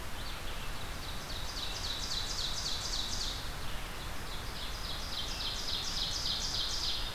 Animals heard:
Ovenbird (Seiurus aurocapilla), Red-eyed Vireo (Vireo olivaceus)

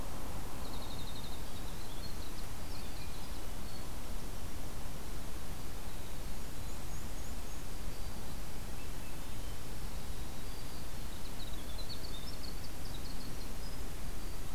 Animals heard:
Black-throated Green Warbler (Setophaga virens), Winter Wren (Troglodytes hiemalis), Swainson's Thrush (Catharus ustulatus), Black-and-white Warbler (Mniotilta varia)

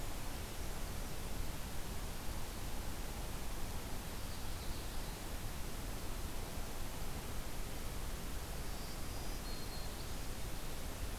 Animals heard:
Ovenbird (Seiurus aurocapilla), Black-throated Green Warbler (Setophaga virens)

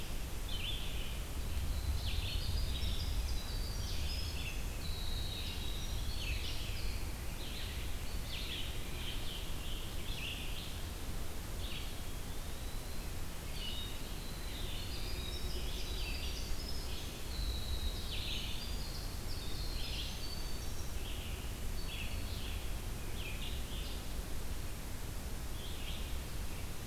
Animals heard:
Eastern Wood-Pewee (Contopus virens), Winter Wren (Troglodytes hiemalis), Red-eyed Vireo (Vireo olivaceus)

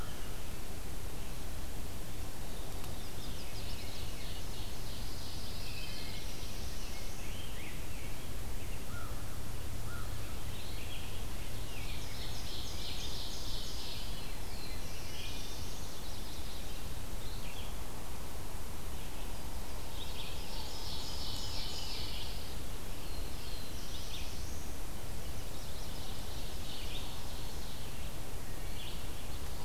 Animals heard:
Yellow-rumped Warbler (Setophaga coronata), Rose-breasted Grosbeak (Pheucticus ludovicianus), Wood Thrush (Hylocichla mustelina), Red-eyed Vireo (Vireo olivaceus), Pine Warbler (Setophaga pinus), Veery (Catharus fuscescens), Black-throated Blue Warbler (Setophaga caerulescens), American Crow (Corvus brachyrhynchos), Ovenbird (Seiurus aurocapilla)

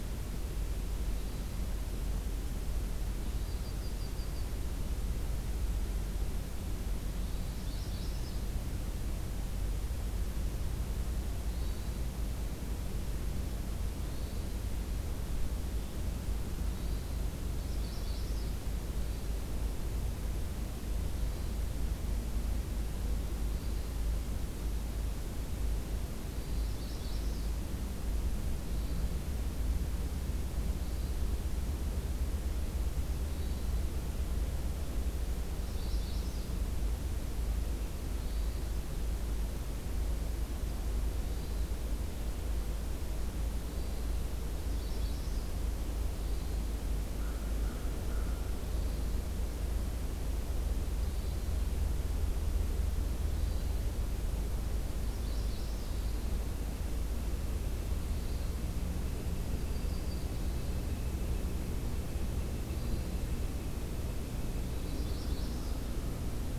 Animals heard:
Northern Flicker (Colaptes auratus), American Crow (Corvus brachyrhynchos), Yellow-rumped Warbler (Setophaga coronata), Magnolia Warbler (Setophaga magnolia), Hermit Thrush (Catharus guttatus)

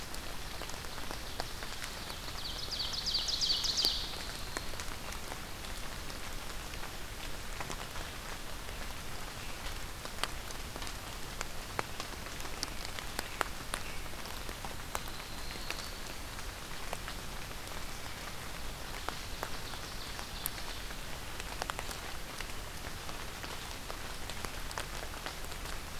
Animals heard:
Yellow-rumped Warbler (Setophaga coronata), Ovenbird (Seiurus aurocapilla)

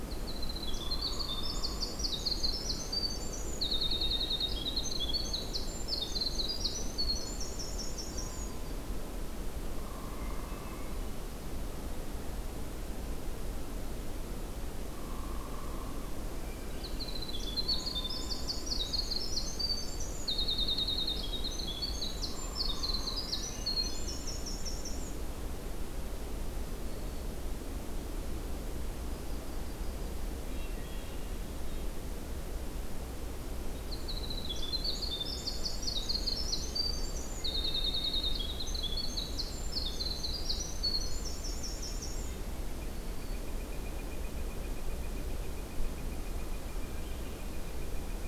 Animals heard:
Red-breasted Nuthatch (Sitta canadensis), Yellow-rumped Warbler (Setophaga coronata), Black-throated Green Warbler (Setophaga virens), Winter Wren (Troglodytes hiemalis), Northern Flicker (Colaptes auratus), Hairy Woodpecker (Dryobates villosus), Hermit Thrush (Catharus guttatus)

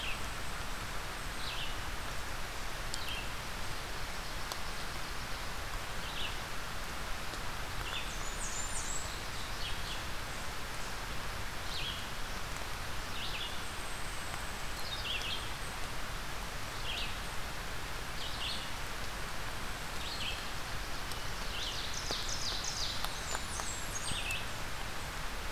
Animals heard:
Blackburnian Warbler (Setophaga fusca), Red-eyed Vireo (Vireo olivaceus), unidentified call, Ovenbird (Seiurus aurocapilla)

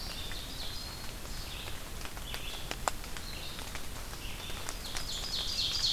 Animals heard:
Ovenbird (Seiurus aurocapilla), Eastern Wood-Pewee (Contopus virens), Red-eyed Vireo (Vireo olivaceus)

